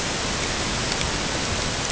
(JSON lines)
{"label": "ambient", "recorder": "HydroMoth"}